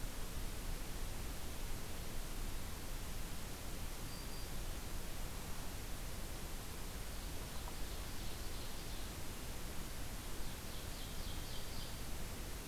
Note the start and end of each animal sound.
3.8s-4.6s: Black-throated Green Warbler (Setophaga virens)
7.3s-9.1s: Ovenbird (Seiurus aurocapilla)
10.1s-12.1s: Ovenbird (Seiurus aurocapilla)

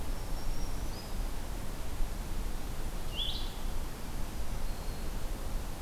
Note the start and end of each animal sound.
0.0s-1.5s: Black-throated Green Warbler (Setophaga virens)
2.8s-3.8s: Blue-headed Vireo (Vireo solitarius)
4.5s-5.2s: Black-throated Green Warbler (Setophaga virens)

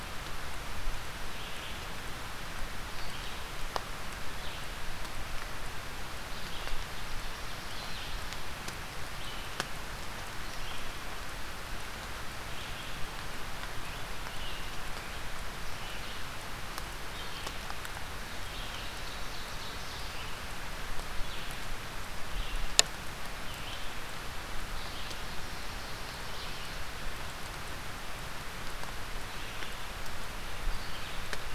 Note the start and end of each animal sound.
0.0s-17.6s: Red-eyed Vireo (Vireo olivaceus)
18.3s-31.6s: Red-eyed Vireo (Vireo olivaceus)
18.4s-20.1s: Ovenbird (Seiurus aurocapilla)
25.0s-26.7s: Ovenbird (Seiurus aurocapilla)
30.7s-31.6s: Scarlet Tanager (Piranga olivacea)

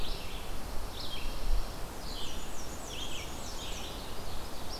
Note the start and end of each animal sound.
0.0s-4.8s: Red-eyed Vireo (Vireo olivaceus)
0.2s-1.8s: Pine Warbler (Setophaga pinus)
1.8s-4.1s: Black-and-white Warbler (Mniotilta varia)

